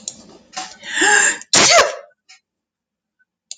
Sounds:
Sneeze